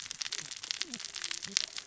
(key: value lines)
label: biophony, cascading saw
recorder: SoundTrap 600 or HydroMoth